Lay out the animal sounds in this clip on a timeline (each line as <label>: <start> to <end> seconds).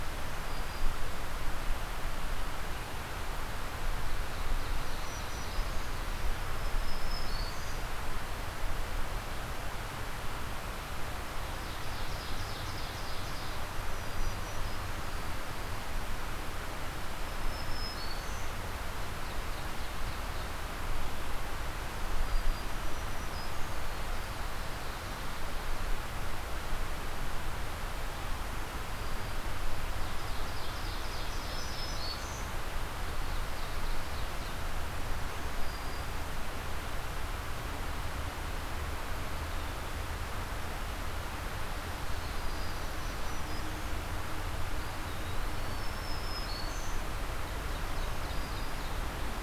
Black-throated Green Warbler (Setophaga virens): 0.3 to 1.1 seconds
Ovenbird (Seiurus aurocapilla): 3.8 to 5.8 seconds
Black-throated Green Warbler (Setophaga virens): 4.8 to 6.1 seconds
Black-throated Green Warbler (Setophaga virens): 6.5 to 8.0 seconds
Ovenbird (Seiurus aurocapilla): 11.4 to 13.6 seconds
Black-throated Green Warbler (Setophaga virens): 13.8 to 15.1 seconds
Black-throated Blue Warbler (Setophaga caerulescens): 14.9 to 16.2 seconds
Black-throated Green Warbler (Setophaga virens): 17.3 to 18.6 seconds
Ovenbird (Seiurus aurocapilla): 19.1 to 20.8 seconds
Black-throated Green Warbler (Setophaga virens): 22.1 to 23.9 seconds
Black-throated Green Warbler (Setophaga virens): 28.7 to 29.6 seconds
Ovenbird (Seiurus aurocapilla): 30.0 to 32.1 seconds
Black-throated Green Warbler (Setophaga virens): 31.3 to 32.6 seconds
Ovenbird (Seiurus aurocapilla): 33.0 to 34.7 seconds
Black-throated Green Warbler (Setophaga virens): 35.4 to 36.3 seconds
Black-throated Green Warbler (Setophaga virens): 42.1 to 44.1 seconds
Eastern Wood-Pewee (Contopus virens): 44.6 to 46.0 seconds
Black-throated Green Warbler (Setophaga virens): 45.6 to 47.1 seconds
Ovenbird (Seiurus aurocapilla): 47.2 to 49.0 seconds